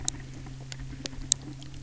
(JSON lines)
{"label": "anthrophony, boat engine", "recorder": "SoundTrap 300"}